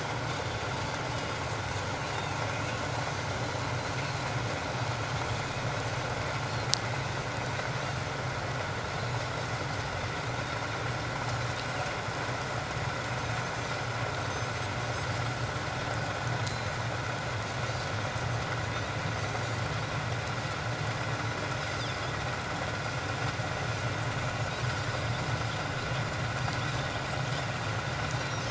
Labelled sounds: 2.1	2.8	Pacific white-sided dolphin, 2.3 to 2.8 kHz
9.0	9.2	Pacific white-sided dolphin, 3.9 to 4.2 kHz
16.4	16.7	Pacific white-sided dolphin, 4.0 to 4.2 kHz

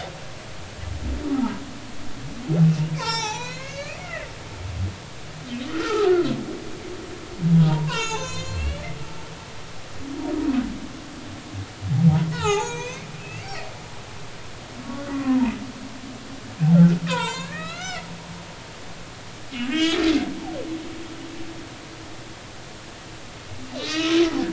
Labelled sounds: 1.3	1.6	humpback whale, 0.80 to 1.0 kHz
2.9	4.3	humpback whale, 0.80 to 7.4 kHz
5.7	6.1	humpback whale, 0.80 to 1.6 kHz
7.5	9.6	humpback whale, 0.80 to 7.5 kHz
12.3	13.7	humpback whale, 0.80 to 6.9 kHz
15.1	15.5	humpback whale, 0.86 to 1.2 kHz
17.1	18.1	humpback whale, 0.86 to 7.5 kHz
19.7	20.1	humpback whale, 1.5 to 4.1 kHz
23.8	24.2	humpback whale, 1.2 to 3.0 kHz

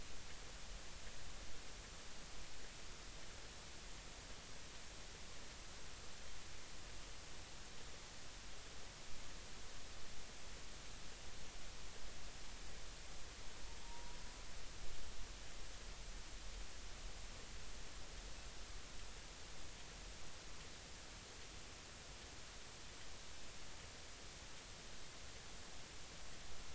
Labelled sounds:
13.8	14.2	humpback whale, 0.90 to 0.99 kHz

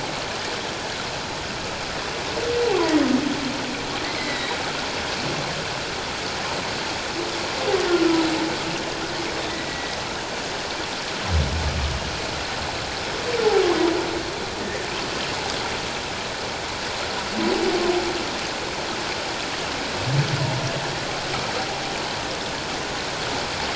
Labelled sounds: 4.1	4.5	humpback whale, 1.8 to 2.3 kHz
7.9	8.3	humpback whale, 1.3 to 1.5 kHz
9.7	9.9	humpback whale, 1.9 to 2.0 kHz
14.6	14.9	humpback whale, 1.7 to 2.1 kHz

